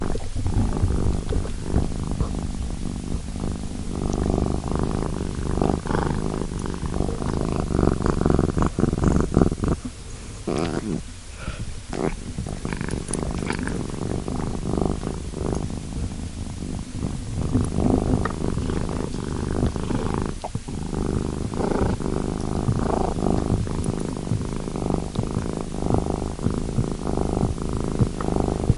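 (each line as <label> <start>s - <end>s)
A cat is purring loudly. 0.0s - 28.8s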